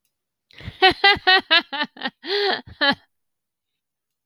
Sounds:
Laughter